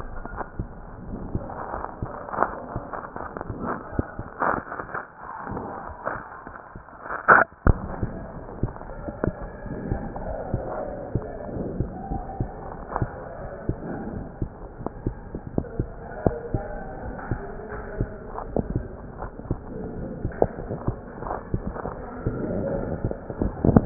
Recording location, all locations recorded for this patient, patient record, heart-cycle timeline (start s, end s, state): aortic valve (AV)
aortic valve (AV)+pulmonary valve (PV)+tricuspid valve (TV)+mitral valve (MV)
#Age: Child
#Sex: Male
#Height: 114.0 cm
#Weight: 19.6 kg
#Pregnancy status: False
#Murmur: Absent
#Murmur locations: nan
#Most audible location: nan
#Systolic murmur timing: nan
#Systolic murmur shape: nan
#Systolic murmur grading: nan
#Systolic murmur pitch: nan
#Systolic murmur quality: nan
#Diastolic murmur timing: nan
#Diastolic murmur shape: nan
#Diastolic murmur grading: nan
#Diastolic murmur pitch: nan
#Diastolic murmur quality: nan
#Outcome: Normal
#Campaign: 2015 screening campaign
0.00	11.11	unannotated
11.11	11.24	S2
11.24	11.51	diastole
11.51	11.67	S1
11.67	11.78	systole
11.78	11.87	S2
11.87	12.07	diastole
12.07	12.25	S1
12.25	12.36	systole
12.36	12.48	S2
12.48	12.70	diastole
12.70	12.87	S1
12.87	12.98	systole
12.98	13.08	S2
13.08	13.38	diastole
13.38	13.50	S1
13.50	13.66	systole
13.66	13.75	S2
13.75	14.02	diastole
14.02	14.17	S1
14.17	14.36	systole
14.36	14.48	S2
14.48	14.78	diastole
14.78	14.93	S1
14.93	15.02	systole
15.02	15.14	S2
15.14	15.37	diastole
15.37	15.61	S1
15.61	15.75	systole
15.75	15.87	S2
15.87	16.14	diastole
16.15	16.35	S1
16.35	16.48	systole
16.48	16.62	S2
16.62	16.99	diastole
16.99	17.14	S1
17.14	17.28	systole
17.28	17.37	S2
17.37	17.68	diastole
17.68	17.84	S1
17.84	17.97	systole
17.97	18.09	S2
18.09	18.25	diastole
18.25	19.17	unannotated
19.17	19.32	S1
19.32	19.46	systole
19.46	19.57	S2
19.57	19.92	diastole
19.92	23.86	unannotated